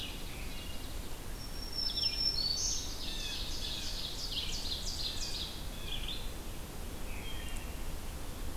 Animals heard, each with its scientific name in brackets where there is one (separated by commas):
Red-eyed Vireo (Vireo olivaceus), Blue Jay (Cyanocitta cristata), Wood Thrush (Hylocichla mustelina), Black-throated Green Warbler (Setophaga virens), Ovenbird (Seiurus aurocapilla)